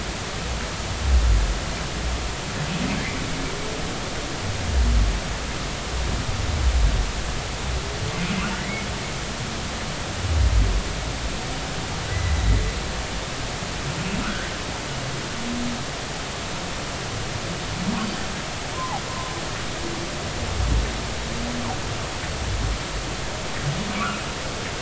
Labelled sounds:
8.6	8.9	humpback whale, 1.9 to 2.3 kHz
12.1	12.4	humpback whale, 1.9 to 2.0 kHz
14.2	14.5	humpback whale, 1.2 to 1.7 kHz
18.7	19.0	humpback whale, 0.80 to 1.1 kHz

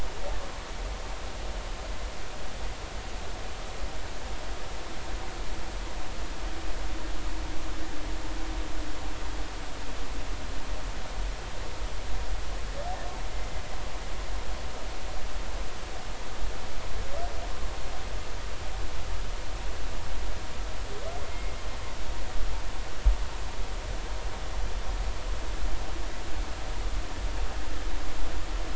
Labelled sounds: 21.3	21.6	humpback whale, 2.1 to 2.2 kHz

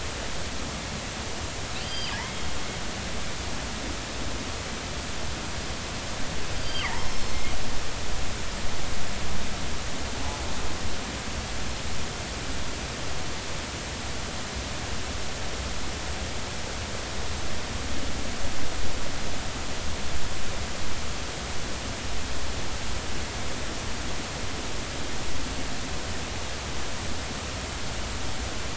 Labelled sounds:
1.8	2.5	killer whale, northern resident, G clan, call N23i, 2.8 to 4.9 kHz
6.6	7.3	killer whale, northern resident, G clan, call N23i, 2.6 to 5.4 kHz

